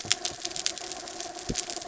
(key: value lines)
label: anthrophony, mechanical
recorder: SoundTrap 300